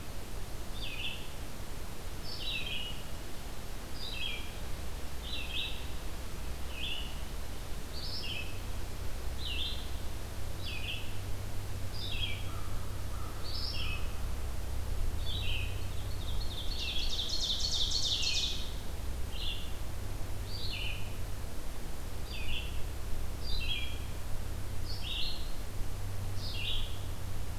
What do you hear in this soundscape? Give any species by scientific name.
Vireo olivaceus, Corvus brachyrhynchos, Seiurus aurocapilla